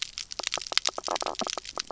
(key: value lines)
label: biophony, knock croak
recorder: SoundTrap 300